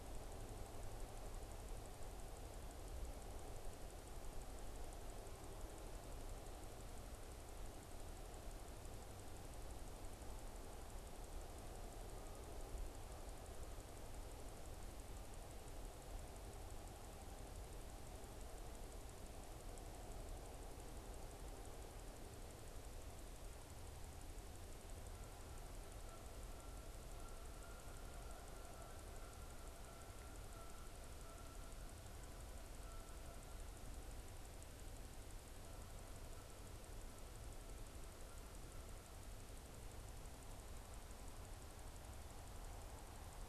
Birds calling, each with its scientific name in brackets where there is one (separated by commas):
Canada Goose (Branta canadensis)